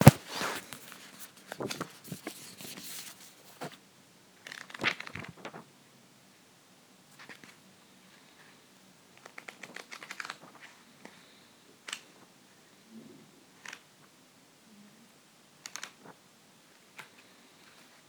Is someone flipping through paper?
yes